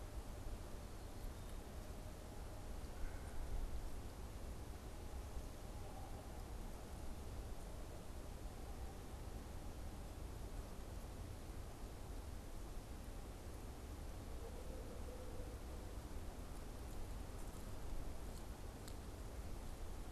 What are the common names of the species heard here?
Red-bellied Woodpecker